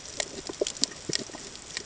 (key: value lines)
label: ambient
recorder: HydroMoth